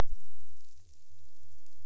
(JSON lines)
{"label": "biophony", "recorder": "SoundTrap 300"}